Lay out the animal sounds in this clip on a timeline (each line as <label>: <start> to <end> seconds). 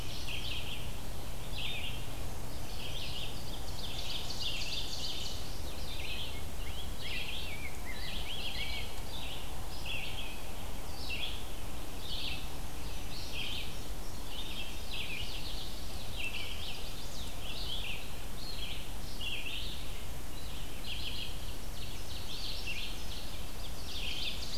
Red-eyed Vireo (Vireo olivaceus): 0.0 to 24.6 seconds
Ovenbird (Seiurus aurocapilla): 3.4 to 5.6 seconds
Rose-breasted Grosbeak (Pheucticus ludovicianus): 6.0 to 8.8 seconds
Indigo Bunting (Passerina cyanea): 12.6 to 15.2 seconds
Chestnut-sided Warbler (Setophaga pensylvanica): 16.1 to 17.3 seconds
Ovenbird (Seiurus aurocapilla): 21.4 to 24.6 seconds